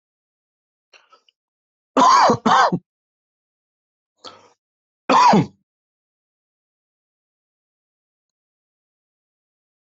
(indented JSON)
{
  "expert_labels": [
    {
      "quality": "ok",
      "cough_type": "dry",
      "dyspnea": false,
      "wheezing": false,
      "stridor": false,
      "choking": false,
      "congestion": false,
      "nothing": true,
      "diagnosis": "COVID-19",
      "severity": "mild"
    },
    {
      "quality": "good",
      "cough_type": "dry",
      "dyspnea": false,
      "wheezing": false,
      "stridor": false,
      "choking": false,
      "congestion": false,
      "nothing": true,
      "diagnosis": "COVID-19",
      "severity": "mild"
    },
    {
      "quality": "good",
      "cough_type": "dry",
      "dyspnea": false,
      "wheezing": false,
      "stridor": false,
      "choking": false,
      "congestion": false,
      "nothing": true,
      "diagnosis": "upper respiratory tract infection",
      "severity": "mild"
    },
    {
      "quality": "good",
      "cough_type": "dry",
      "dyspnea": false,
      "wheezing": false,
      "stridor": false,
      "choking": false,
      "congestion": false,
      "nothing": true,
      "diagnosis": "healthy cough",
      "severity": "pseudocough/healthy cough"
    }
  ],
  "age": 28,
  "gender": "male",
  "respiratory_condition": false,
  "fever_muscle_pain": false,
  "status": "symptomatic"
}